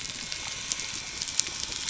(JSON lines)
{"label": "anthrophony, boat engine", "recorder": "SoundTrap 300"}